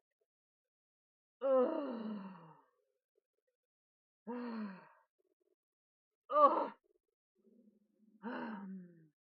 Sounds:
Sigh